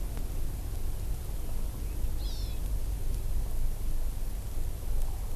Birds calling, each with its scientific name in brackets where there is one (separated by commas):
Hawaii Amakihi (Chlorodrepanis virens)